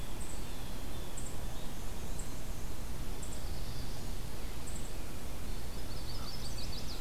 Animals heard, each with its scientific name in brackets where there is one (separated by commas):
Eastern Wood-Pewee (Contopus virens), American Crow (Corvus brachyrhynchos), Black-and-white Warbler (Mniotilta varia), Chestnut-sided Warbler (Setophaga pensylvanica), Blue Jay (Cyanocitta cristata), Black-throated Blue Warbler (Setophaga caerulescens)